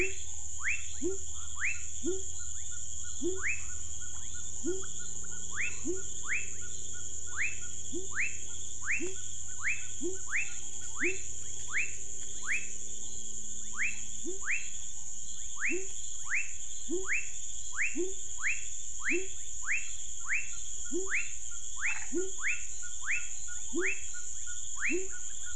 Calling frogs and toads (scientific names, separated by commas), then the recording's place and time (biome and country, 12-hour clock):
Leptodactylus fuscus, Leptodactylus labyrinthicus, Boana raniceps
Cerrado, Brazil, 7:00pm